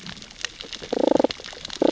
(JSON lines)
{"label": "biophony, damselfish", "recorder": "SoundTrap 600 or HydroMoth"}